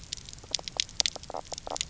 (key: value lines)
label: biophony, knock croak
recorder: SoundTrap 300